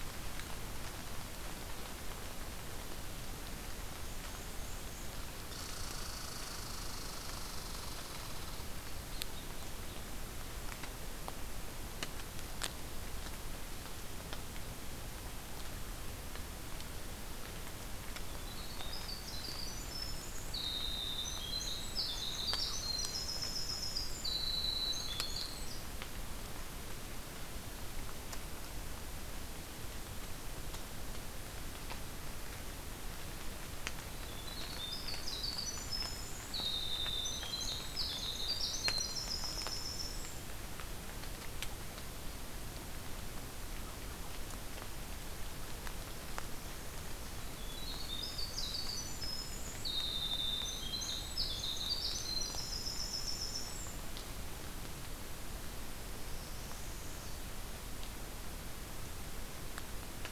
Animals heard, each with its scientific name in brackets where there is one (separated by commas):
Black-and-white Warbler (Mniotilta varia), Northern Parula (Setophaga americana), Red Squirrel (Tamiasciurus hudsonicus), Winter Wren (Troglodytes hiemalis)